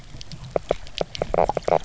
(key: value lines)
label: biophony, knock croak
recorder: SoundTrap 300